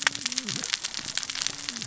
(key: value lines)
label: biophony, cascading saw
recorder: SoundTrap 600 or HydroMoth